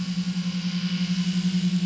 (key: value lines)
label: anthrophony, boat engine
recorder: SoundTrap 500